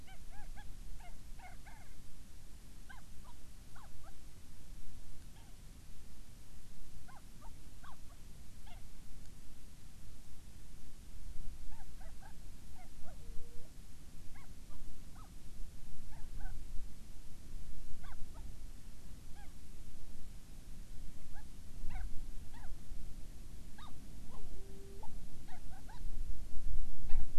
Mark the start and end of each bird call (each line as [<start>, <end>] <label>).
[0.00, 2.00] Hawaiian Petrel (Pterodroma sandwichensis)
[2.80, 4.20] Hawaiian Petrel (Pterodroma sandwichensis)
[5.30, 5.60] Hawaiian Petrel (Pterodroma sandwichensis)
[7.00, 8.90] Hawaiian Petrel (Pterodroma sandwichensis)
[11.70, 13.70] Hawaiian Petrel (Pterodroma sandwichensis)
[14.30, 15.30] Hawaiian Petrel (Pterodroma sandwichensis)
[16.10, 16.60] Hawaiian Petrel (Pterodroma sandwichensis)
[18.00, 18.40] Hawaiian Petrel (Pterodroma sandwichensis)
[19.30, 19.50] Hawaiian Petrel (Pterodroma sandwichensis)
[21.10, 22.80] Hawaiian Petrel (Pterodroma sandwichensis)
[23.70, 26.10] Hawaiian Petrel (Pterodroma sandwichensis)
[27.00, 27.30] Hawaiian Petrel (Pterodroma sandwichensis)